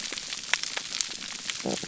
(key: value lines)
label: biophony
recorder: SoundTrap 300